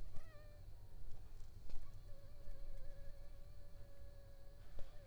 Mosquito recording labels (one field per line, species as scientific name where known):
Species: Anopheles funestus s.l.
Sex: female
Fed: unfed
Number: one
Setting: cup